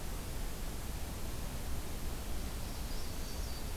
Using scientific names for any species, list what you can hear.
Setophaga americana, Setophaga virens